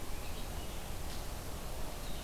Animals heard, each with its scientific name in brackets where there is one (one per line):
Blue-headed Vireo (Vireo solitarius)